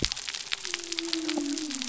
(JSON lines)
{"label": "biophony", "recorder": "SoundTrap 300"}